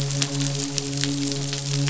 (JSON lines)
{"label": "biophony, midshipman", "recorder": "SoundTrap 500"}